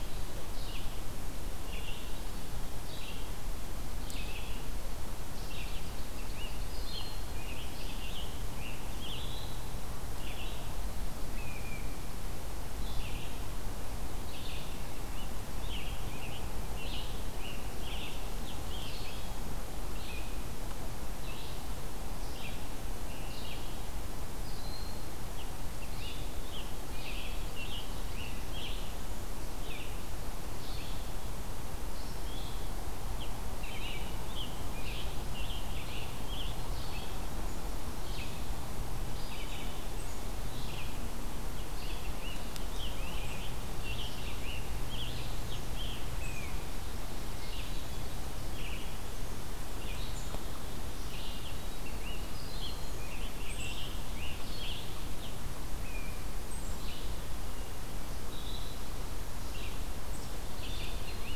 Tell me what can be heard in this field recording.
Red-eyed Vireo, Scarlet Tanager